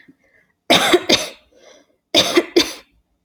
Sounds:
Cough